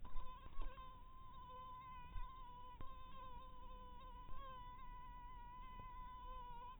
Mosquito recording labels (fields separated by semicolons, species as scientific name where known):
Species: mosquito; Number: one; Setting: cup